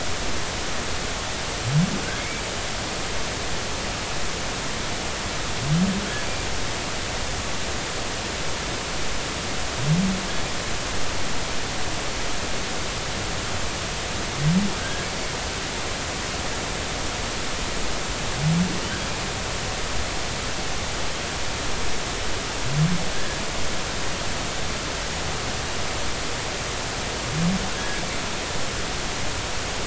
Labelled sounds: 2.2	2.4	humpback whale, 2.1 to 2.4 kHz
14.8	15.1	humpback whale, 1.5 to 1.7 kHz
23.1	23.4	humpback whale, 1.6 to 1.9 kHz
27.7	28.0	humpback whale, 1.6 to 1.7 kHz

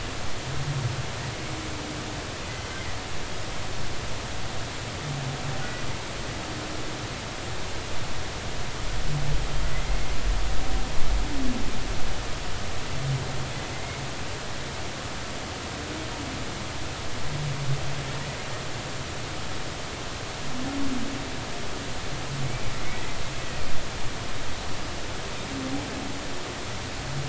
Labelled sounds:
13.7	14.0	humpback whale, 2.0 to 2.2 kHz
22.9	23.2	humpback whale, 1.9 to 2.1 kHz

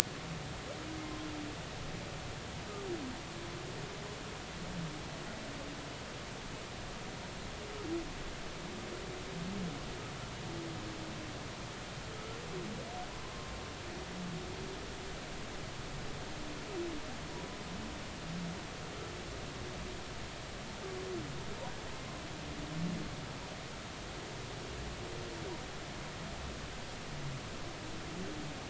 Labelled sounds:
13.2	13.5	humpback whale, 0.99 to 1.1 kHz

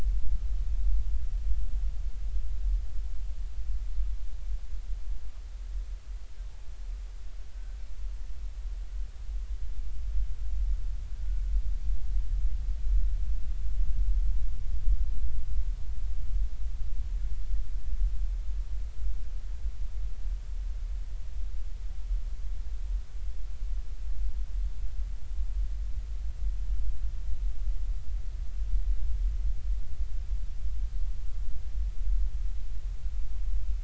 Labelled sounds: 7.5	7.8	killer whale, Bigg's (transient), 1.4 to 1.6 kHz

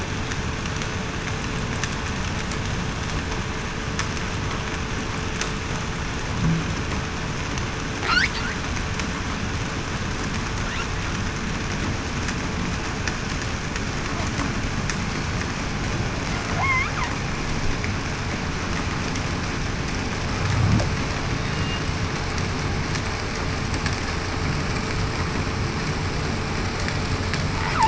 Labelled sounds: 16.5	16.9	killer whale, southern resident, 0.66 to 1.4 kHz
21.5	21.8	killer whale, southern resident, 2.8 to 2.9 kHz

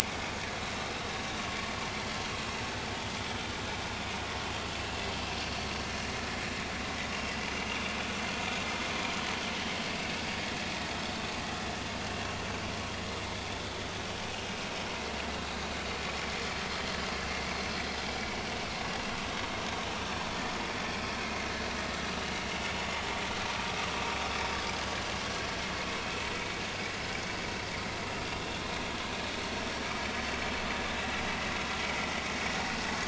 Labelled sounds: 5.4	5.7	vessel noise, 4.4 to 4.5 kHz

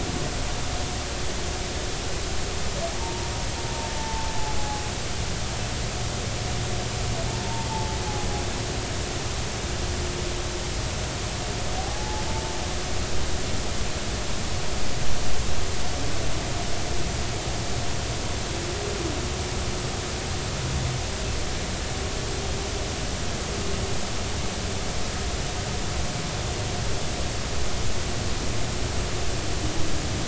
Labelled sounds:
3.0	4.8	humpback whale, 0.80 to 0.99 kHz
7.4	8.0	humpback whale, 0.83 to 0.96 kHz
11.8	12.3	humpback whale, 0.80 to 0.90 kHz

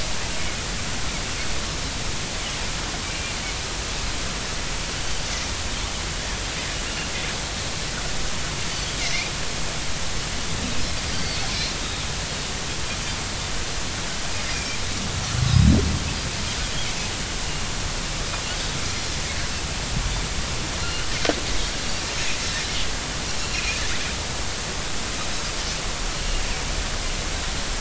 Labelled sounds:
9.0	9.3	Pacific white-sided dolphin, 1.9 to 2.5 kHz
11.1	11.4	Pacific white-sided dolphin, 4.5 to 4.7 kHz
14.4	14.8	Pacific white-sided dolphin, 2.3 to 5.0 kHz
20.8	21.1	Pacific white-sided dolphin, 2.6 to 3.1 kHz
23.5	23.8	Pacific white-sided dolphin, 2.3 to 2.6 kHz

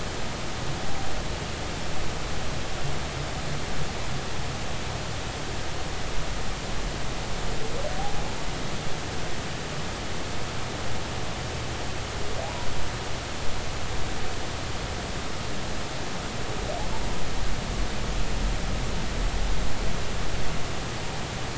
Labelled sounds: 12.4	12.7	humpback whale, 0.80 to 1.0 kHz

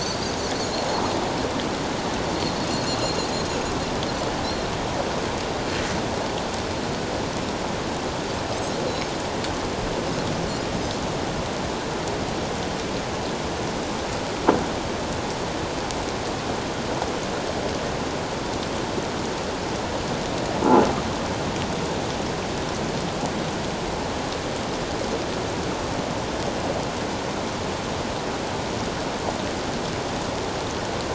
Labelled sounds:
0.0	0.3	Pacific white-sided dolphin, 4.2 to 4.9 kHz

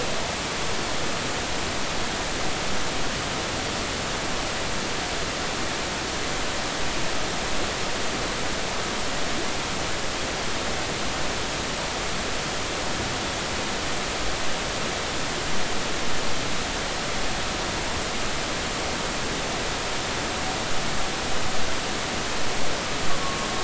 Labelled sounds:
23.2	23.5	humpback whale, 1.1 to 1.2 kHz

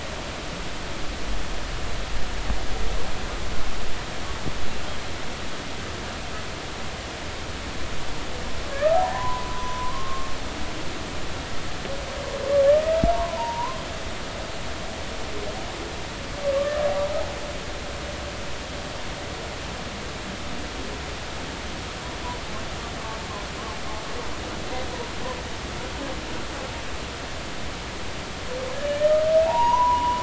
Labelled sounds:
8.7	10.3	humpback whale, 0.80 to 1.3 kHz
13.1	13.8	humpback whale, 0.86 to 1.1 kHz
28.9	30.2	humpback whale, 0.80 to 3.0 kHz

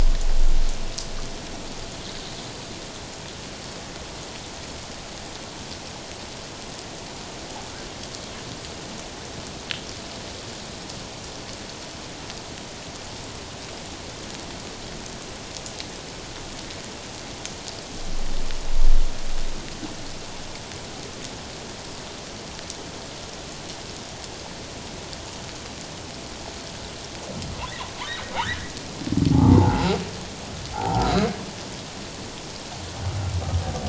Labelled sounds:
28.3	28.7	humpback whale, 0.78 to 2.0 kHz
29.3	29.9	humpback whale, 0.78 to 1.3 kHz
30.7	31.1	humpback whale, 0.78 to 1.0 kHz

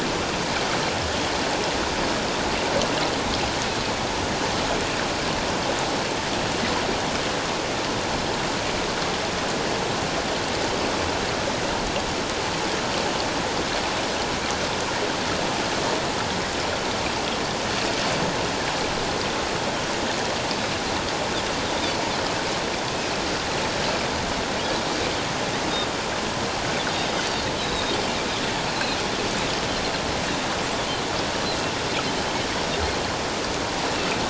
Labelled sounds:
27.6	27.8	Pacific white-sided dolphin, 3.7 to 4.1 kHz

